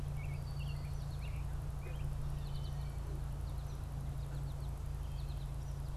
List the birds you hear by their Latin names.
Turdus migratorius, Spinus tristis